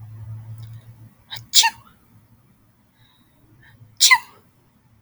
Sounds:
Sneeze